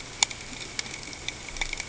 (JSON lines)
{"label": "ambient", "recorder": "HydroMoth"}